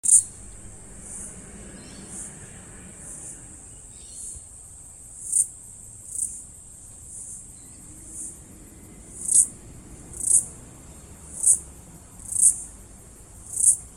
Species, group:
Aleeta curvicosta, Cicadidae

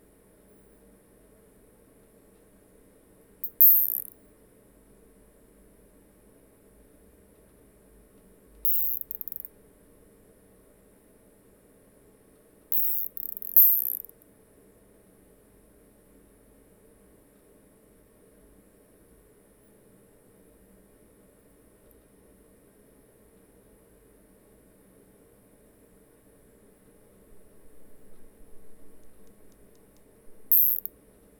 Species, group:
Isophya longicaudata, Orthoptera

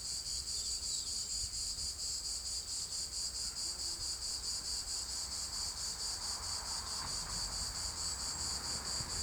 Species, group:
Cicada orni, Cicadidae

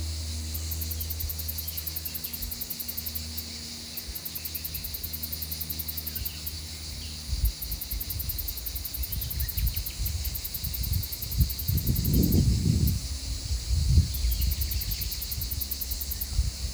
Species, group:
Tettigettalna argentata, Cicadidae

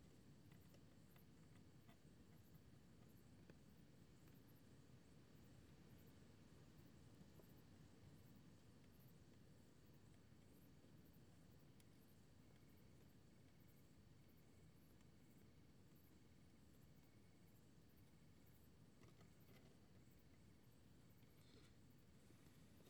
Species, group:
Roeseliana roeselii, Orthoptera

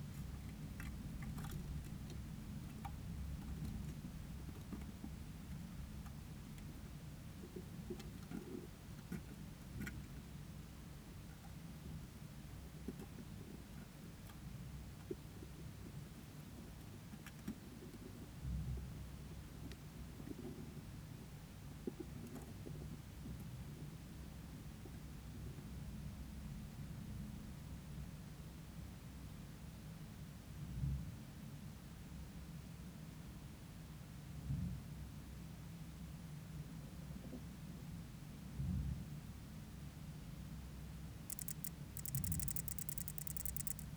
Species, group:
Odontura glabricauda, Orthoptera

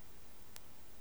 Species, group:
Metaplastes ornatus, Orthoptera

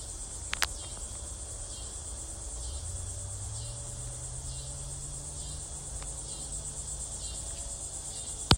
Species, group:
Neotibicen latifasciatus, Cicadidae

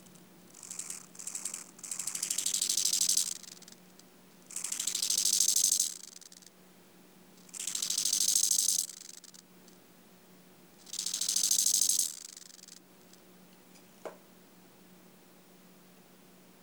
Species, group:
Chorthippus eisentrauti, Orthoptera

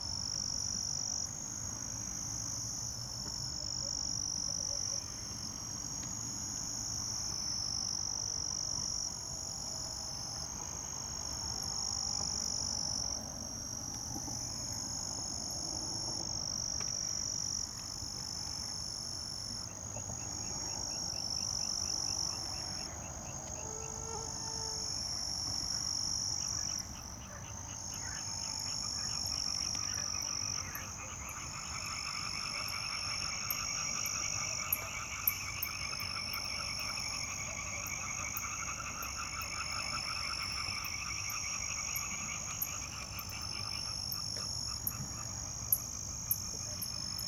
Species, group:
Pteronemobius heydenii, Orthoptera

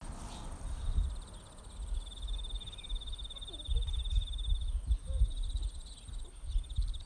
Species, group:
Teleogryllus commodus, Orthoptera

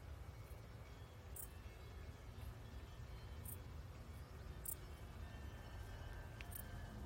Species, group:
Pholidoptera griseoaptera, Orthoptera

